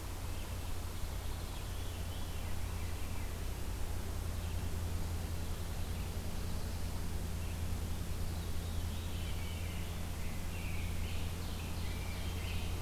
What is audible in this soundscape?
Veery, Rose-breasted Grosbeak, Ovenbird